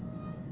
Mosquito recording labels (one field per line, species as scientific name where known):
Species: Aedes albopictus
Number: one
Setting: insect culture